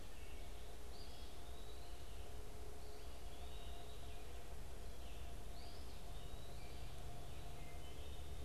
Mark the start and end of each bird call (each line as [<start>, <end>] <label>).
[0.00, 8.44] Eastern Wood-Pewee (Contopus virens)
[0.00, 8.44] Red-eyed Vireo (Vireo olivaceus)
[0.02, 0.62] Wood Thrush (Hylocichla mustelina)
[7.62, 8.12] Wood Thrush (Hylocichla mustelina)